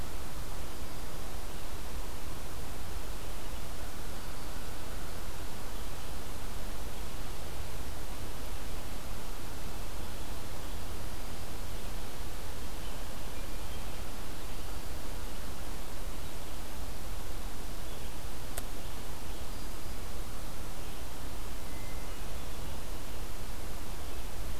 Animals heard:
forest ambience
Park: Marsh-Billings-Rockefeller National Historical Park